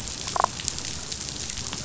{"label": "biophony, damselfish", "recorder": "SoundTrap 500"}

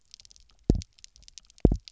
{"label": "biophony, double pulse", "recorder": "SoundTrap 300"}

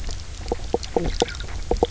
{"label": "biophony, knock croak", "recorder": "SoundTrap 300"}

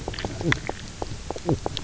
{"label": "biophony, knock croak", "recorder": "SoundTrap 300"}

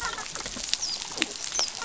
{"label": "biophony, dolphin", "recorder": "SoundTrap 500"}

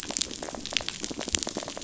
{"label": "biophony", "recorder": "SoundTrap 500"}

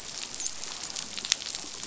{"label": "biophony, dolphin", "recorder": "SoundTrap 500"}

